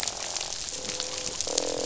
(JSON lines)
{"label": "biophony, croak", "recorder": "SoundTrap 500"}